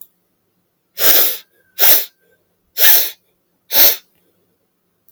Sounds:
Sniff